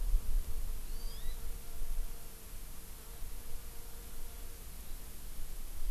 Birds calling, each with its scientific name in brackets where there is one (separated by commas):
Hawaii Amakihi (Chlorodrepanis virens)